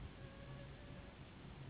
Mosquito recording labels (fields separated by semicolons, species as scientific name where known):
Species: Anopheles gambiae s.s.; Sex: female; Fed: unfed; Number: one; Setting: insect culture